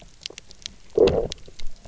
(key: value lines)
label: biophony, low growl
recorder: SoundTrap 300